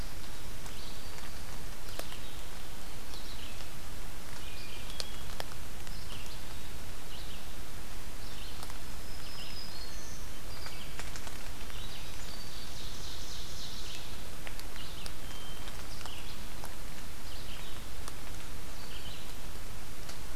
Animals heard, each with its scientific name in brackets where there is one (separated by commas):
Red-eyed Vireo (Vireo olivaceus), Hermit Thrush (Catharus guttatus), Black-throated Green Warbler (Setophaga virens), Ovenbird (Seiurus aurocapilla)